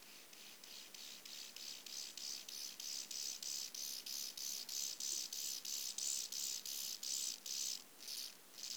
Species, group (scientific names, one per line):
Chorthippus mollis
Orthoptera